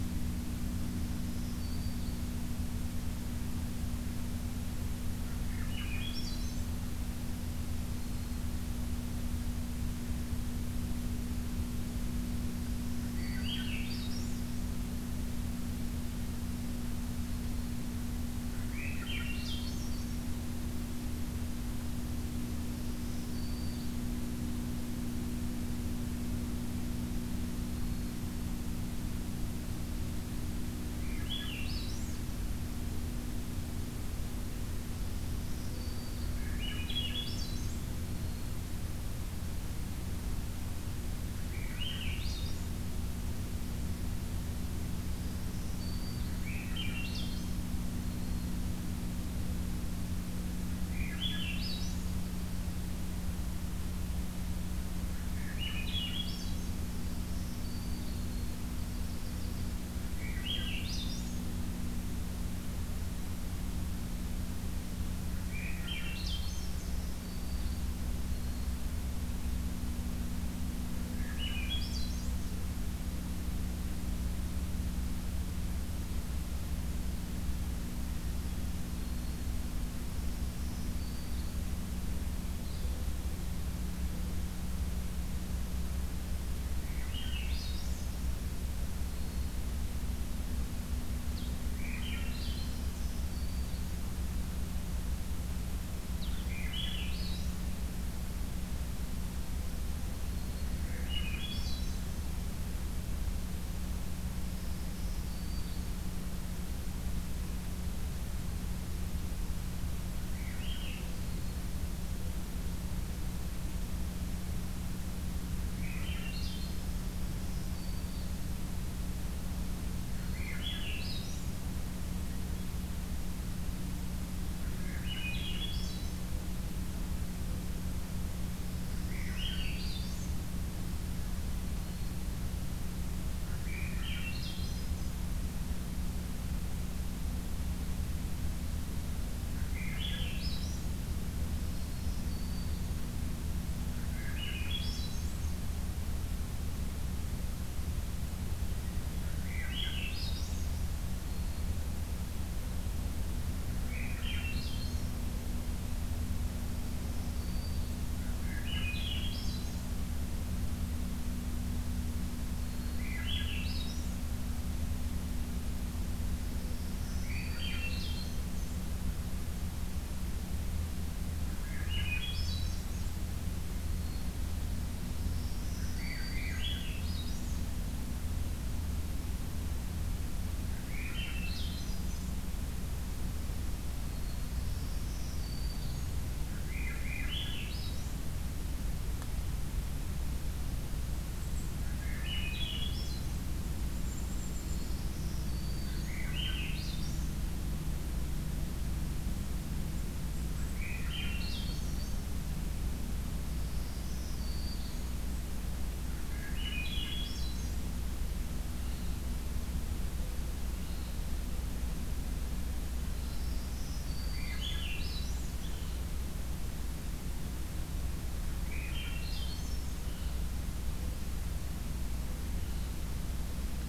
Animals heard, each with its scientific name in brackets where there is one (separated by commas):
Swainson's Thrush (Catharus ustulatus), Blue-headed Vireo (Vireo solitarius), Black-throated Green Warbler (Setophaga virens), Golden-crowned Kinglet (Regulus satrapa), Yellow-rumped Warbler (Setophaga coronata)